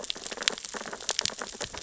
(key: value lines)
label: biophony, sea urchins (Echinidae)
recorder: SoundTrap 600 or HydroMoth